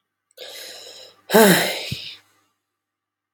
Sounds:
Sigh